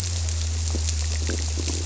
{"label": "biophony, squirrelfish (Holocentrus)", "recorder": "SoundTrap 300"}
{"label": "biophony", "recorder": "SoundTrap 300"}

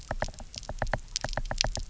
{"label": "biophony, knock", "recorder": "SoundTrap 300"}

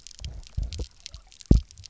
{"label": "biophony, double pulse", "recorder": "SoundTrap 300"}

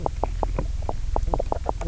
{"label": "biophony, knock croak", "recorder": "SoundTrap 300"}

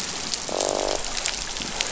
{"label": "biophony, croak", "recorder": "SoundTrap 500"}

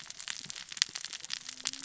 {"label": "biophony, cascading saw", "recorder": "SoundTrap 600 or HydroMoth"}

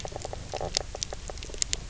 {"label": "biophony, knock croak", "recorder": "SoundTrap 300"}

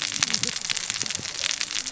{"label": "biophony, cascading saw", "recorder": "SoundTrap 600 or HydroMoth"}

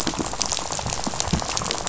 {"label": "biophony, rattle", "recorder": "SoundTrap 500"}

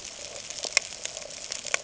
{"label": "ambient", "recorder": "HydroMoth"}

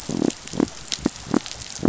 {"label": "biophony", "recorder": "SoundTrap 500"}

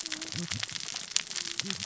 {"label": "biophony, cascading saw", "recorder": "SoundTrap 600 or HydroMoth"}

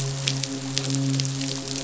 {"label": "biophony, midshipman", "recorder": "SoundTrap 500"}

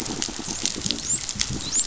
{"label": "biophony, dolphin", "recorder": "SoundTrap 500"}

